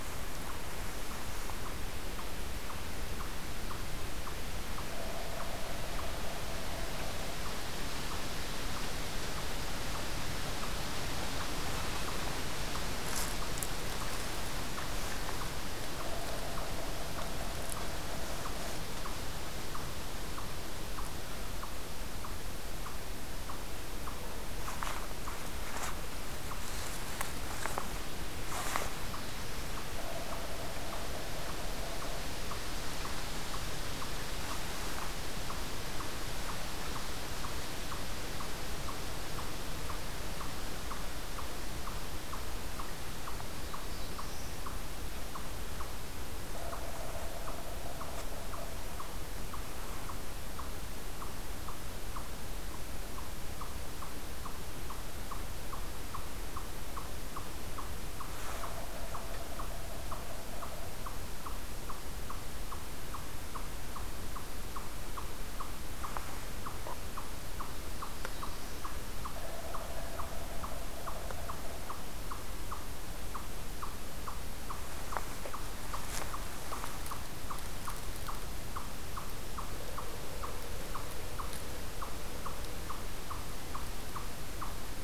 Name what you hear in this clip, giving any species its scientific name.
Tamias striatus, Sphyrapicus varius, Setophaga caerulescens